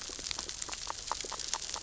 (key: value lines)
label: biophony, grazing
recorder: SoundTrap 600 or HydroMoth